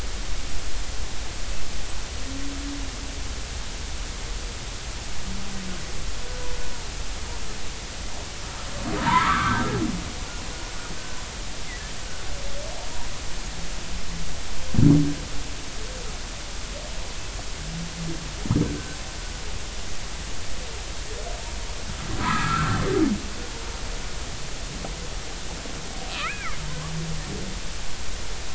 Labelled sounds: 9.0	9.7	humpback whale, 0.86 to 1.7 kHz
18.6	19.0	humpback whale, 1.5 to 1.6 kHz
22.2	22.8	humpback whale, 0.90 to 1.7 kHz
26.1	26.6	humpback whale, 1.1 to 2.7 kHz

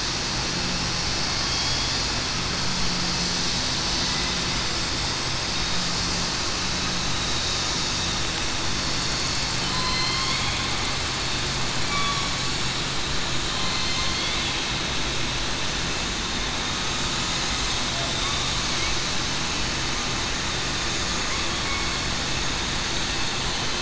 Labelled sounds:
1.4	1.9	killer whale, southern resident, 3.2 to 3.4 kHz
9.7	10.2	killer whale, southern resident, 2.0 to 4.3 kHz
11.9	12.3	killer whale, southern resident, 1.1 to 1.2 kHz
14.0	14.4	killer whale, southern resident, 3.2 to 3.7 kHz

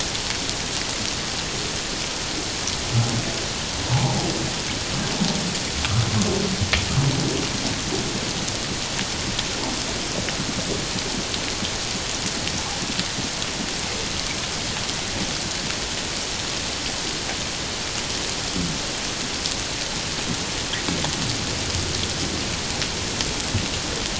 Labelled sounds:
3.9	4.2	humpback whale, 0.78 to 1.0 kHz

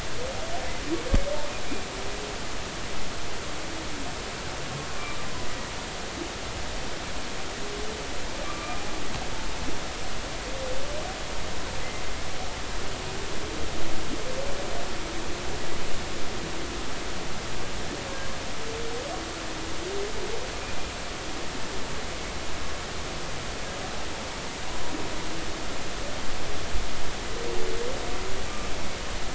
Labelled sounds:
8.4	8.9	humpback whale, 1.1 to 2.5 kHz

